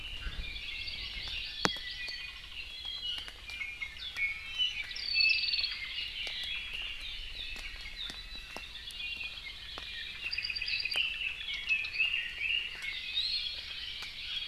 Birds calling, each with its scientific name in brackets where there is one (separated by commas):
Hawaii Amakihi (Chlorodrepanis virens), Red-billed Leiothrix (Leiothrix lutea), Iiwi (Drepanis coccinea), Apapane (Himatione sanguinea), Hawaii Creeper (Loxops mana)